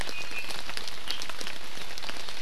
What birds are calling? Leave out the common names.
Drepanis coccinea